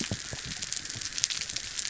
{"label": "biophony", "recorder": "SoundTrap 300"}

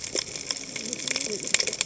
{"label": "biophony, cascading saw", "recorder": "HydroMoth"}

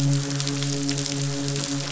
{"label": "biophony, midshipman", "recorder": "SoundTrap 500"}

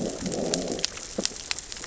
{"label": "biophony, growl", "recorder": "SoundTrap 600 or HydroMoth"}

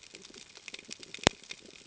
{"label": "ambient", "recorder": "HydroMoth"}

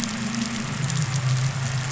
{"label": "anthrophony, boat engine", "recorder": "SoundTrap 500"}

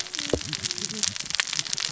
{"label": "biophony, cascading saw", "recorder": "SoundTrap 600 or HydroMoth"}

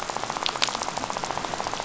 {"label": "biophony, rattle", "recorder": "SoundTrap 500"}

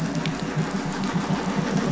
{"label": "anthrophony, boat engine", "recorder": "SoundTrap 500"}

